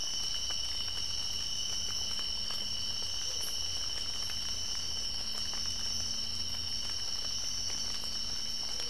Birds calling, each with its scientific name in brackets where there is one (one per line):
White-eared Ground-Sparrow (Melozone leucotis)